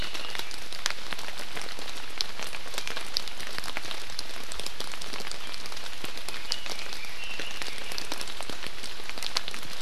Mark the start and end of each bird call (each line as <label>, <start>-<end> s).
Red-billed Leiothrix (Leiothrix lutea), 6.3-8.2 s